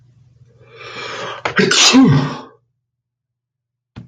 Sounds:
Sneeze